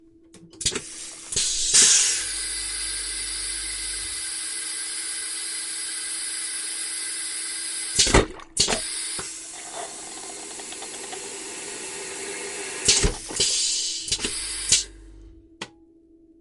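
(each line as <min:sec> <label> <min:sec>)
0:00.6 A toilet is flushing. 0:07.9
0:01.2 Steam is releasing quickly. 0:02.3
0:07.9 Toilet flushing with water sounds. 0:08.4
0:08.5 A toilet is flushing. 0:13.2
0:13.2 Steam-like air is released and fills the area. 0:15.0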